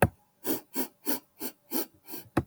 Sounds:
Sniff